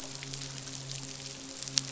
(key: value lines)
label: biophony, midshipman
recorder: SoundTrap 500